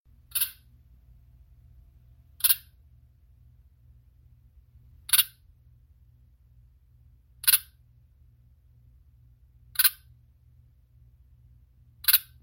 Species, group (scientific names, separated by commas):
Lea floridensis, Orthoptera